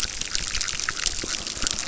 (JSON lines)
{"label": "biophony, chorus", "recorder": "SoundTrap 600"}